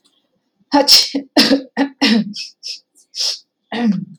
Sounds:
Sneeze